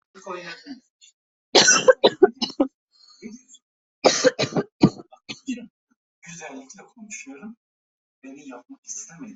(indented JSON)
{
  "expert_labels": [
    {
      "quality": "ok",
      "cough_type": "wet",
      "dyspnea": false,
      "wheezing": false,
      "stridor": false,
      "choking": false,
      "congestion": false,
      "nothing": true,
      "diagnosis": "lower respiratory tract infection",
      "severity": "mild"
    }
  ],
  "age": 40,
  "gender": "female",
  "respiratory_condition": true,
  "fever_muscle_pain": false,
  "status": "symptomatic"
}